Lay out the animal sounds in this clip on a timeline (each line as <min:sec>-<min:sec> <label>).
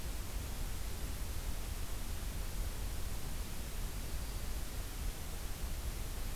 0:03.6-0:04.6 Black-throated Green Warbler (Setophaga virens)